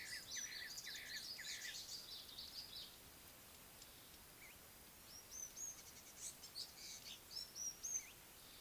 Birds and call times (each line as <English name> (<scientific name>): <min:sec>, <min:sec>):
African Gray Flycatcher (Bradornis microrhynchus): 0:05.4